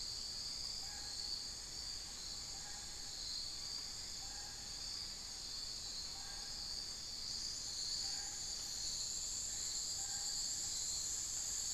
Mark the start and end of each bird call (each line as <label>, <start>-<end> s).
unidentified bird, 0.0-10.9 s